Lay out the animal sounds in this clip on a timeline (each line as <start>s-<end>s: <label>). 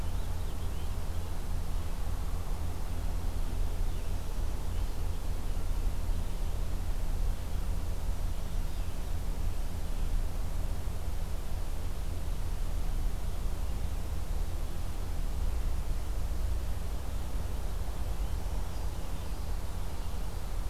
0.0s-1.5s: Purple Finch (Haemorhous purpureus)
0.0s-10.1s: Red-eyed Vireo (Vireo olivaceus)
7.9s-9.1s: Black-throated Green Warbler (Setophaga virens)
17.1s-20.3s: Purple Finch (Haemorhous purpureus)
18.1s-19.1s: Black-throated Green Warbler (Setophaga virens)